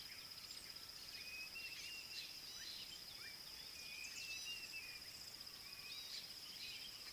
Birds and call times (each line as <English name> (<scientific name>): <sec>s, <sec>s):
Dideric Cuckoo (Chrysococcyx caprius): 1.5s, 4.3s
Gray-backed Camaroptera (Camaroptera brevicaudata): 4.4s, 6.0s